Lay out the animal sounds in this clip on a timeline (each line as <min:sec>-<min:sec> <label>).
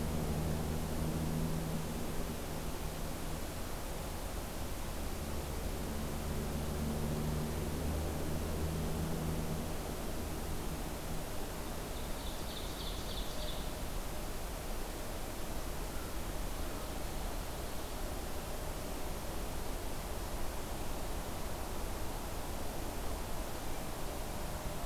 0:11.8-0:13.8 Ovenbird (Seiurus aurocapilla)